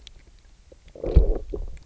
{"label": "biophony, low growl", "recorder": "SoundTrap 300"}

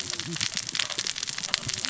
{"label": "biophony, cascading saw", "recorder": "SoundTrap 600 or HydroMoth"}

